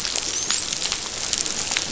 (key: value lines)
label: biophony, dolphin
recorder: SoundTrap 500